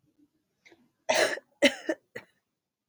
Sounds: Cough